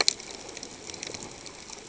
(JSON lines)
{"label": "ambient", "recorder": "HydroMoth"}